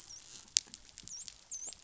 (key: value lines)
label: biophony, dolphin
recorder: SoundTrap 500